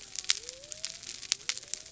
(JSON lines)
{"label": "biophony", "recorder": "SoundTrap 300"}